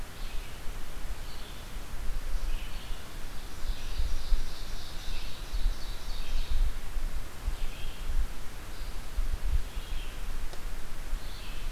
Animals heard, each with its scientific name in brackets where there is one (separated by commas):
Red-eyed Vireo (Vireo olivaceus), Ovenbird (Seiurus aurocapilla)